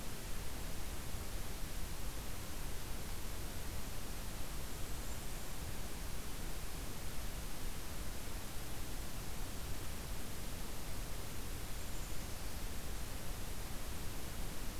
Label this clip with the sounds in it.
Blackburnian Warbler, Golden-crowned Kinglet